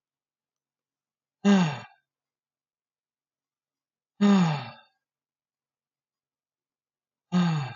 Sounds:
Sigh